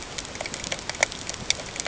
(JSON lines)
{"label": "ambient", "recorder": "HydroMoth"}